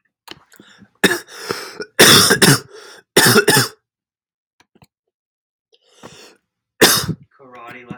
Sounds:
Cough